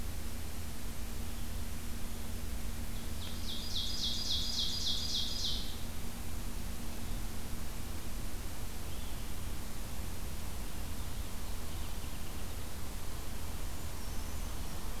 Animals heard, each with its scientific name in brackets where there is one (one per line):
Blue-headed Vireo (Vireo solitarius)
Brown Creeper (Certhia americana)
Ovenbird (Seiurus aurocapilla)